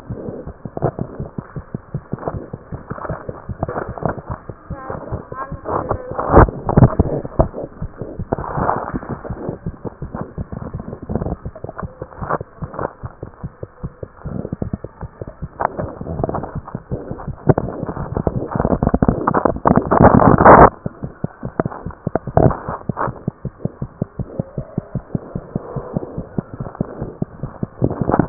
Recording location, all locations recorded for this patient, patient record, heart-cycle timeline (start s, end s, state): mitral valve (MV)
aortic valve (AV)+mitral valve (MV)
#Age: Infant
#Sex: Female
#Height: 62.0 cm
#Weight: 7.3 kg
#Pregnancy status: False
#Murmur: Unknown
#Murmur locations: nan
#Most audible location: nan
#Systolic murmur timing: nan
#Systolic murmur shape: nan
#Systolic murmur grading: nan
#Systolic murmur pitch: nan
#Systolic murmur quality: nan
#Diastolic murmur timing: nan
#Diastolic murmur shape: nan
#Diastolic murmur grading: nan
#Diastolic murmur pitch: nan
#Diastolic murmur quality: nan
#Outcome: Normal
#Campaign: 2015 screening campaign
0.00	23.30	unannotated
23.30	23.43	diastole
23.43	23.52	S1
23.52	23.63	systole
23.63	23.70	S2
23.70	23.80	diastole
23.80	23.87	S1
23.87	23.98	systole
23.98	24.07	S2
24.07	24.17	diastole
24.17	24.25	S1
24.25	24.36	systole
24.36	24.43	S2
24.43	24.56	diastole
24.56	24.66	S1
24.66	24.76	systole
24.76	24.86	S2
24.86	24.94	diastole
24.94	25.02	S1
25.02	25.13	systole
25.13	25.18	S2
25.18	25.33	diastole
25.33	25.40	S1
25.40	25.53	systole
25.53	25.58	S2
25.58	25.75	diastole
25.75	25.80	S1
25.80	25.94	systole
25.94	26.00	S2
26.00	26.17	diastole
26.17	26.23	S1
26.23	26.36	systole
26.36	26.42	S2
26.42	26.59	diastole
26.59	26.64	S1
26.64	26.79	systole
26.79	26.84	S2
26.84	27.00	diastole
27.00	27.06	S1
27.06	27.19	systole
27.19	27.25	S2
27.25	27.42	diastole
27.42	27.48	S1
27.48	27.61	systole
27.61	27.67	S2
27.67	27.80	diastole
27.80	28.29	unannotated